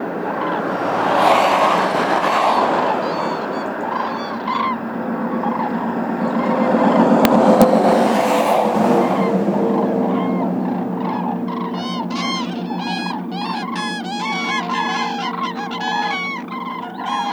Is this inside a house?
no